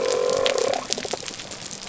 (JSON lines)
{"label": "biophony", "recorder": "SoundTrap 300"}